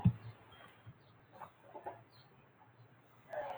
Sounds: Cough